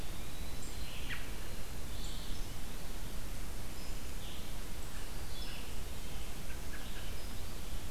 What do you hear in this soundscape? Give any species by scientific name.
Contopus virens, Vireo olivaceus, Turdus migratorius